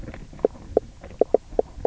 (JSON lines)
{"label": "biophony, knock croak", "recorder": "SoundTrap 300"}